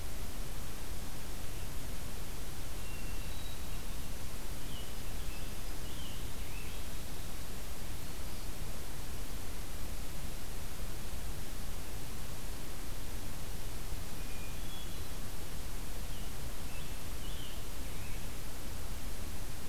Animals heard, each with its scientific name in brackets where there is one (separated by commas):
Hermit Thrush (Catharus guttatus), American Robin (Turdus migratorius)